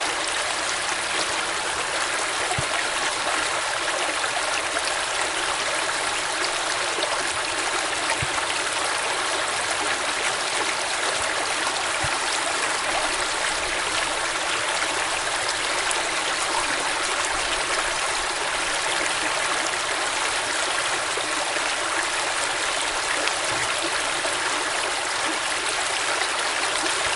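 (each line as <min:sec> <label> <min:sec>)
0:00.0 Waterfall sounds continue. 0:27.2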